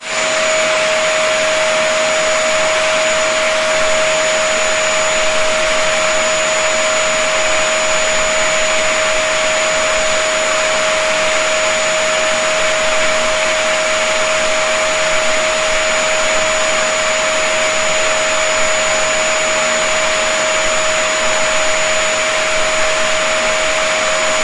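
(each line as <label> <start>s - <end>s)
A vacuum cleaner is running. 0.0s - 24.4s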